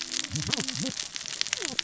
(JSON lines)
{"label": "biophony, cascading saw", "recorder": "SoundTrap 600 or HydroMoth"}